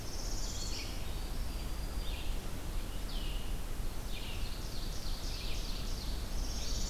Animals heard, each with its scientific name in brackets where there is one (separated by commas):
Red-eyed Vireo (Vireo olivaceus), Black-throated Green Warbler (Setophaga virens), Northern Parula (Setophaga americana), Ovenbird (Seiurus aurocapilla)